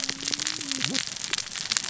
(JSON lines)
{"label": "biophony, cascading saw", "recorder": "SoundTrap 600 or HydroMoth"}